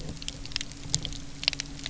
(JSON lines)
{"label": "anthrophony, boat engine", "recorder": "SoundTrap 300"}